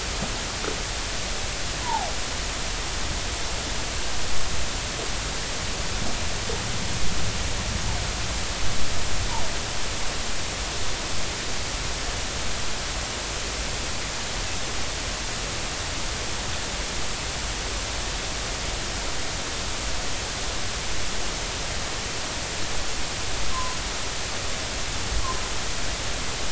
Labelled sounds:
1.8	2.1	humpback whale, 0.80 to 1.1 kHz
23.5	23.8	humpback whale, 0.96 to 1.1 kHz

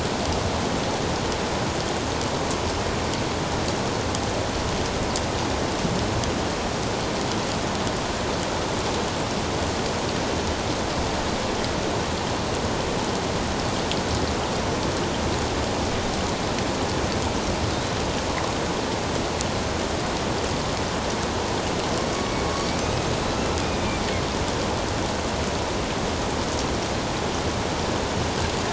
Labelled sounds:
23.3	23.6	killer whale, northern resident, A clan, AB subclan, 2.6 to 2.8 kHz

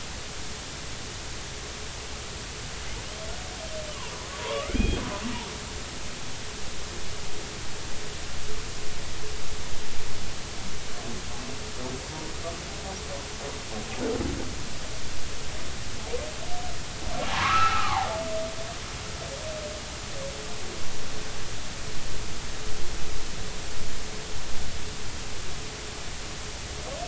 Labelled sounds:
4.3	5.0	humpback whale, 0.86 to 3.5 kHz
17.3	18.1	humpback whale, 0.80 to 2.8 kHz

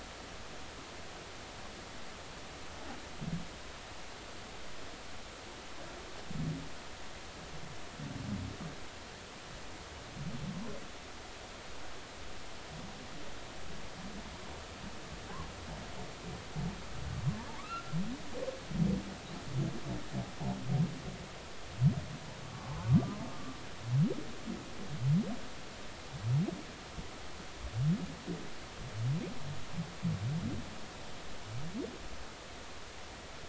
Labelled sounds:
17.6	17.9	humpback whale, 1.1 to 1.4 kHz
22.4	23.6	humpback whale, 0.99 to 1.2 kHz

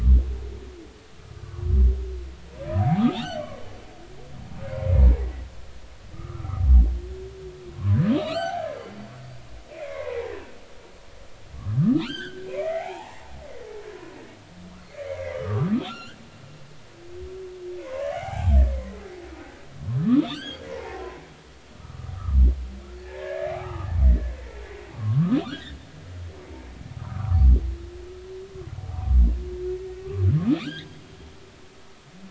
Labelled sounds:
2.8	3.6	humpback whale, 0.80 to 4.6 kHz
5.2	5.5	humpback whale, 1.8 to 2.0 kHz
6.1	6.6	humpback whale, 1.0 to 1.4 kHz
7.8	8.8	humpback whale, 0.80 to 4.7 kHz
9.7	10.2	humpback whale, 0.86 to 2.5 kHz
11.8	13.3	humpback whale, 0.80 to 4.9 kHz
15.0	16.2	humpback whale, 0.96 to 3.4 kHz
16.8	19.6	humpback whale, 0.80 to 7.3 kHz
20.0	22.4	humpback whale, 0.80 to 3.4 kHz
23.0	23.9	humpback whale, 0.80 to 1.9 kHz
24.9	25.8	humpback whale, 1.0 to 4.0 kHz
27.0	27.4	humpback whale, 0.93 to 1.5 kHz
30.6	31.0	humpback whale, 1.1 to 6.6 kHz

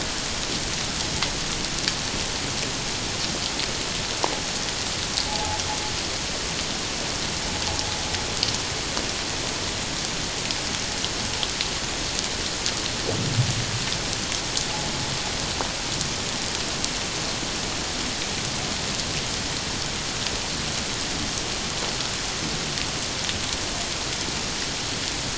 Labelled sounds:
5.3	5.6	noise likely from the mooring, 0.78 to 0.91 kHz

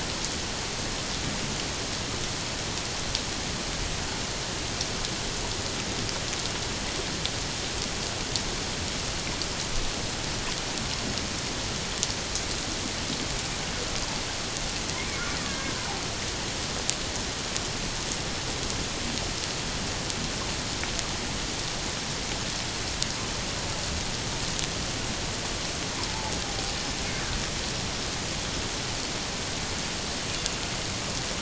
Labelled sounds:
15.5	15.8	killer whale, Bigg's (transient), 1.5 to 1.8 kHz

